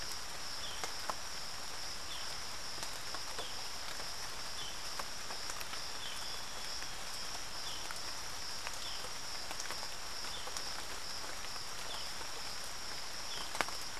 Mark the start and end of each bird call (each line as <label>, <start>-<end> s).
Chestnut-winged Foliage-gleaner (Dendroma erythroptera), 5.6-7.4 s